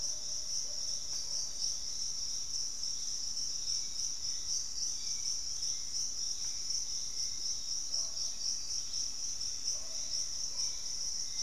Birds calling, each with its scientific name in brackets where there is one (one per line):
Pygmy Antwren (Myrmotherula brachyura)
unidentified bird
Hauxwell's Thrush (Turdus hauxwelli)
Fasciated Antshrike (Cymbilaimus lineatus)